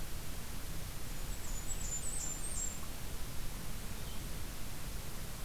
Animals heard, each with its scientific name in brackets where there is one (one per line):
Blackburnian Warbler (Setophaga fusca)